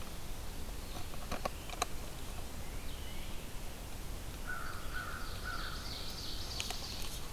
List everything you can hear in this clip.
Tufted Titmouse, American Crow, Ovenbird